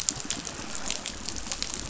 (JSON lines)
{"label": "biophony, chatter", "recorder": "SoundTrap 500"}